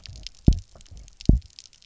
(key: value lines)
label: biophony, double pulse
recorder: SoundTrap 300